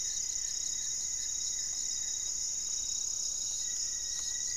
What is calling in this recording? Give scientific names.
Formicarius analis, Akletos goeldii, Formicarius rufifrons